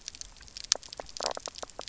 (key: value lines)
label: biophony, knock croak
recorder: SoundTrap 300